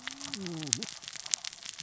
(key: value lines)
label: biophony, cascading saw
recorder: SoundTrap 600 or HydroMoth